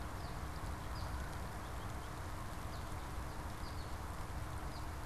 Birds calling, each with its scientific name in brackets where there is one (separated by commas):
American Goldfinch (Spinus tristis)